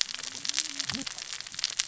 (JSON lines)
{"label": "biophony, cascading saw", "recorder": "SoundTrap 600 or HydroMoth"}